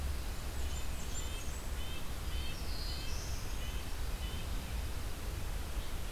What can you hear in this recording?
Red-eyed Vireo, Blackburnian Warbler, Red-breasted Nuthatch, Black-throated Blue Warbler, Dark-eyed Junco